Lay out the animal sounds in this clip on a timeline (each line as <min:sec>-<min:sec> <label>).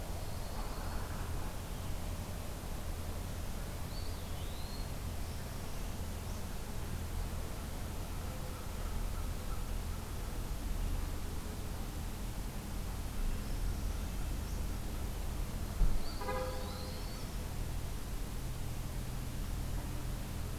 0:00.0-0:01.2 Yellow-rumped Warbler (Setophaga coronata)
0:03.8-0:05.0 Eastern Wood-Pewee (Contopus virens)
0:05.0-0:06.4 Northern Parula (Setophaga americana)
0:13.3-0:14.7 Northern Parula (Setophaga americana)
0:16.0-0:17.3 Eastern Wood-Pewee (Contopus virens)
0:16.1-0:17.3 Yellow-rumped Warbler (Setophaga coronata)